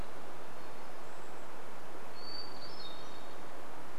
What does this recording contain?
Golden-crowned Kinglet call, Hermit Thrush song